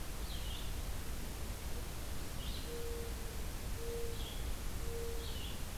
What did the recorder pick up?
Red-eyed Vireo, Mourning Dove